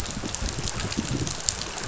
{"label": "biophony, chatter", "recorder": "SoundTrap 500"}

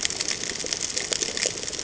{"label": "ambient", "recorder": "HydroMoth"}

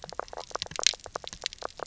{"label": "biophony, knock croak", "recorder": "SoundTrap 300"}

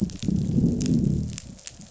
{"label": "biophony, growl", "recorder": "SoundTrap 500"}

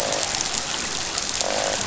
{"label": "biophony, croak", "recorder": "SoundTrap 500"}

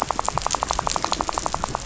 {"label": "biophony, rattle", "recorder": "SoundTrap 500"}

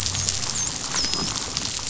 {"label": "biophony, dolphin", "recorder": "SoundTrap 500"}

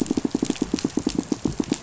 {"label": "biophony, pulse", "recorder": "SoundTrap 500"}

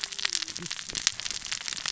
{"label": "biophony, cascading saw", "recorder": "SoundTrap 600 or HydroMoth"}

